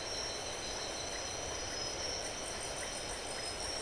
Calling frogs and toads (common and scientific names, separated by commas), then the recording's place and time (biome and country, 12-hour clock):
none
Atlantic Forest, Brazil, 11:00pm